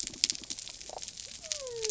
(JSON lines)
{"label": "biophony", "recorder": "SoundTrap 300"}